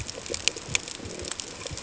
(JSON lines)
{"label": "ambient", "recorder": "HydroMoth"}